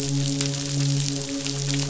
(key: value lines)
label: biophony, midshipman
recorder: SoundTrap 500